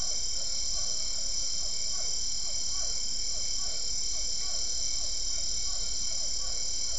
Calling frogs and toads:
Physalaemus cuvieri (Leptodactylidae)

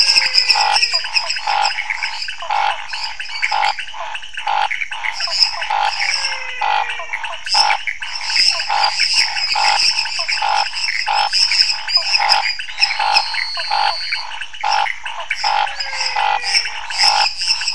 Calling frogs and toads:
Physalaemus albonotatus (Leptodactylidae), Dendropsophus minutus (Hylidae), Leptodactylus podicipinus (Leptodactylidae), Pithecopus azureus (Hylidae), Scinax fuscovarius (Hylidae), Physalaemus nattereri (Leptodactylidae), Elachistocleis matogrosso (Microhylidae)

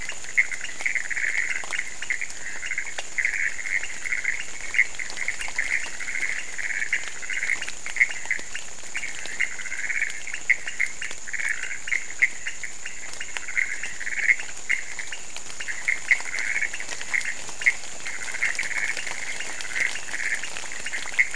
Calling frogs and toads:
Leptodactylus podicipinus (Leptodactylidae), Pithecopus azureus (Hylidae)

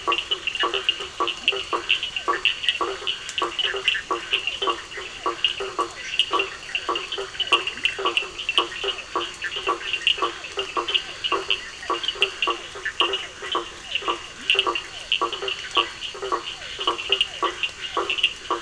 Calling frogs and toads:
Boana faber (Hylidae), Elachistocleis bicolor (Microhylidae), Scinax perereca (Hylidae), Sphaenorhynchus surdus (Hylidae), Leptodactylus latrans (Leptodactylidae), Physalaemus cuvieri (Leptodactylidae)

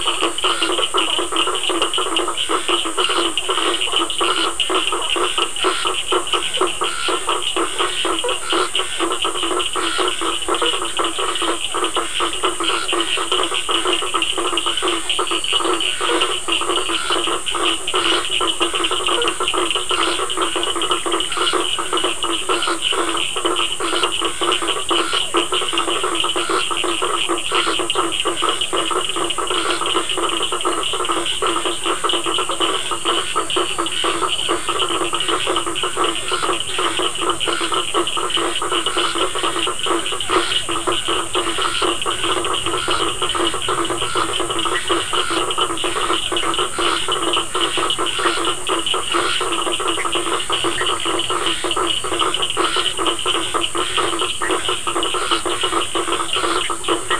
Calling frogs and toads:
Boana bischoffi (Hylidae), Boana faber (Hylidae), Sphaenorhynchus surdus (Hylidae), Scinax perereca (Hylidae)

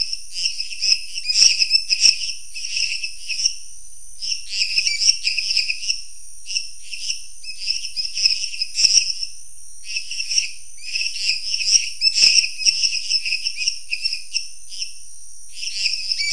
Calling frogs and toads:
Dendropsophus minutus (Hylidae)

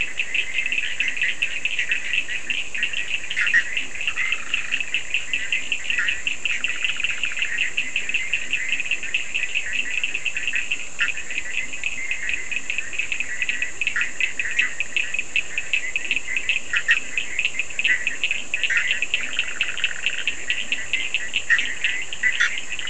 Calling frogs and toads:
Boana bischoffi (Hylidae), Leptodactylus latrans (Leptodactylidae), Sphaenorhynchus surdus (Hylidae)

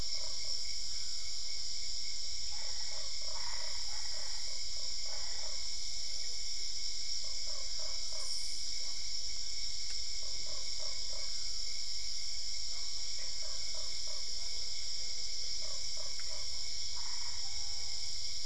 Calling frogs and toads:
Boana lundii (Hylidae), Boana albopunctata (Hylidae)

